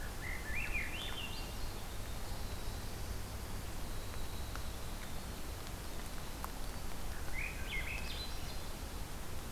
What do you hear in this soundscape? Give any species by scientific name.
Catharus ustulatus, Troglodytes hiemalis